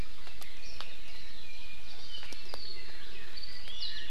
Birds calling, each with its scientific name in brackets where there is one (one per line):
Apapane (Himatione sanguinea)
Iiwi (Drepanis coccinea)